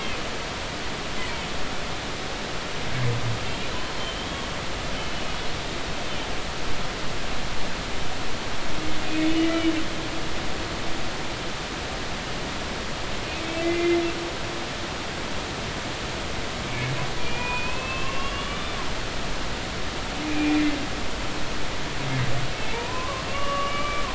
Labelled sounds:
0.8	1.2	humpback whale, 3.0 to 3.3 kHz
4.0	4.5	humpback whale, 3.0 to 3.3 kHz
9.4	9.7	humpback whale, 2.2 to 2.4 kHz
13.4	14.0	humpback whale, 2.0 to 2.5 kHz
17.2	18.7	humpback whale, 1.0 to 2.9 kHz
20.2	20.6	humpback whale, 2.3 to 2.5 kHz
22.5	24.0	humpback whale, 0.86 to 3.0 kHz

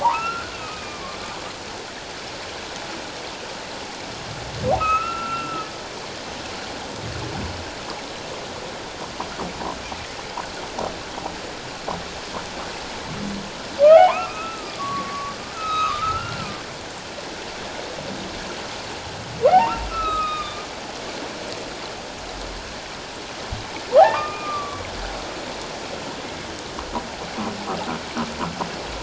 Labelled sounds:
0.0	1.2	humpback whale, 0.78 to 2.8 kHz
4.8	5.7	humpback whale, 1.2 to 2.8 kHz
13.8	16.4	humpback whale, 0.78 to 4.0 kHz
19.5	20.7	humpback whale, 0.78 to 4.0 kHz
24.0	24.8	humpback whale, 0.78 to 2.5 kHz

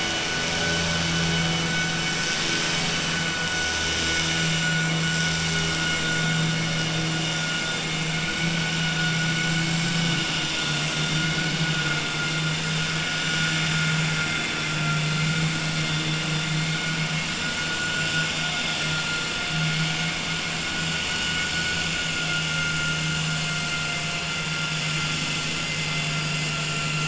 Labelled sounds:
14.1	15.2	vessel noise, 0.70 to 3.6 kHz
21.0	21.8	vessel noise, 1.3 to 3.7 kHz

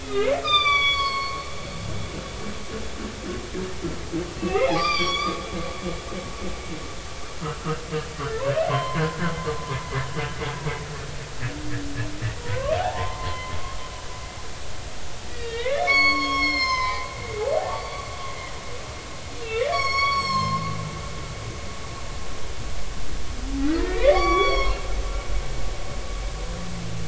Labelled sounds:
0.0	1.4	humpback whale, 1.0 to 6.1 kHz
4.4	5.4	humpback whale, 0.80 to 6.0 kHz
8.7	9.0	humpback whale, 0.96 to 3.2 kHz
12.4	13.5	humpback whale, 0.80 to 4.2 kHz
15.3	18.1	humpback whale, 0.80 to 6.8 kHz
19.4	20.6	humpback whale, 0.99 to 7.8 kHz
23.6	24.8	humpback whale, 0.96 to 5.7 kHz

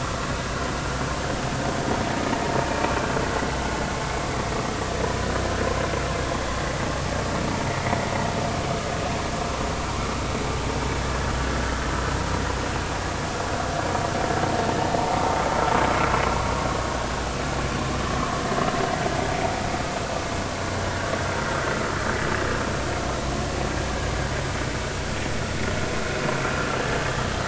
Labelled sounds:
11.0	11.3	vessel noise, 1.6 to 1.8 kHz

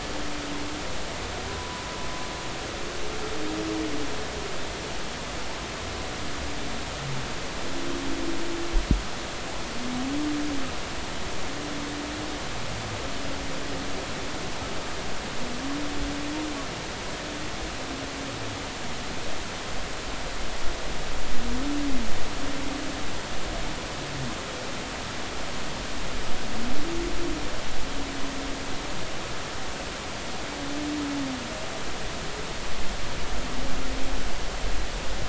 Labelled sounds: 1.5	1.8	humpback whale, 0.96 to 1.0 kHz

